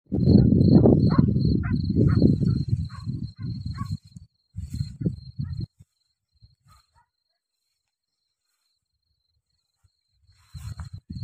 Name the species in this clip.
Gryllus campestris